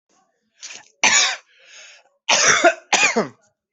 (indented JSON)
{
  "expert_labels": [
    {
      "quality": "good",
      "cough_type": "wet",
      "dyspnea": false,
      "wheezing": false,
      "stridor": false,
      "choking": false,
      "congestion": false,
      "nothing": true,
      "diagnosis": "lower respiratory tract infection",
      "severity": "mild"
    }
  ],
  "age": 21,
  "gender": "male",
  "respiratory_condition": false,
  "fever_muscle_pain": true,
  "status": "symptomatic"
}